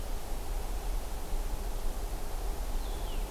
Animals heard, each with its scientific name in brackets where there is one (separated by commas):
Blue-headed Vireo (Vireo solitarius)